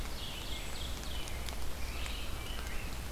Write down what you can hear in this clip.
Ovenbird, American Robin, Red-eyed Vireo, unidentified call, Wood Thrush